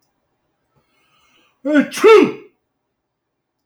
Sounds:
Sneeze